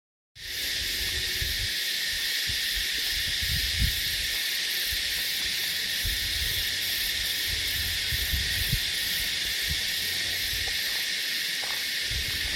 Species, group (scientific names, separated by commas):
Psaltoda harrisii, Cicadidae